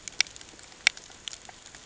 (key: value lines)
label: ambient
recorder: HydroMoth